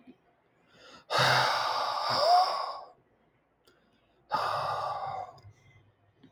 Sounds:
Sigh